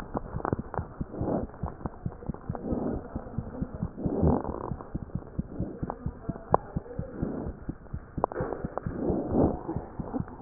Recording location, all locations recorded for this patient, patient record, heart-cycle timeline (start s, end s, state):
pulmonary valve (PV)
aortic valve (AV)+pulmonary valve (PV)+tricuspid valve (TV)+mitral valve (MV)
#Age: Infant
#Sex: Female
#Height: 97.0 cm
#Weight: 7.1 kg
#Pregnancy status: False
#Murmur: Absent
#Murmur locations: nan
#Most audible location: nan
#Systolic murmur timing: nan
#Systolic murmur shape: nan
#Systolic murmur grading: nan
#Systolic murmur pitch: nan
#Systolic murmur quality: nan
#Diastolic murmur timing: nan
#Diastolic murmur shape: nan
#Diastolic murmur grading: nan
#Diastolic murmur pitch: nan
#Diastolic murmur quality: nan
#Outcome: Normal
#Campaign: 2015 screening campaign
0.00	4.94	unannotated
4.94	4.98	S1
4.98	5.14	systole
5.14	5.17	S2
5.17	5.38	diastole
5.38	5.42	S1
5.42	5.59	systole
5.59	5.62	S2
5.62	5.82	diastole
5.82	5.85	S1
5.85	6.05	systole
6.05	6.10	S2
6.10	6.28	diastole
6.28	6.31	S1
6.31	6.51	systole
6.51	6.54	S2
6.54	6.75	diastole
6.75	6.79	S1
6.79	6.98	systole
6.98	7.01	S2
7.01	7.22	diastole
7.22	7.25	S1
7.25	7.46	systole
7.46	7.49	S2
7.49	7.68	diastole
7.68	7.72	S1
7.72	7.93	systole
7.93	7.98	S2
7.98	8.17	diastole
8.17	8.20	S1
8.20	8.39	systole
8.39	8.43	S2
8.43	8.63	diastole
8.63	8.67	S1
8.67	8.86	systole
8.86	8.89	S2
8.89	9.08	diastole
9.08	9.13	S1
9.13	10.42	unannotated